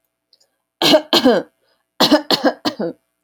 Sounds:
Cough